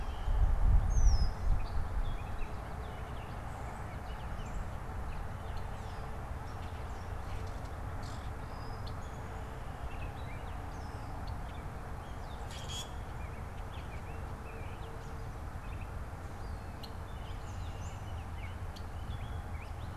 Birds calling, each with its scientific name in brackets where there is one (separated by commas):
Gray Catbird (Dumetella carolinensis), Red-winged Blackbird (Agelaius phoeniceus), Common Grackle (Quiscalus quiscula), Baltimore Oriole (Icterus galbula)